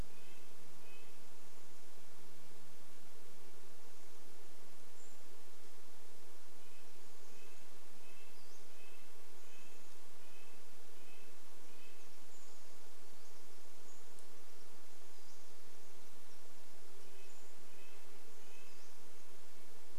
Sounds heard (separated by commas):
Pacific-slope Flycatcher call, insect buzz, Red-breasted Nuthatch song